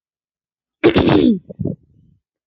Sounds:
Throat clearing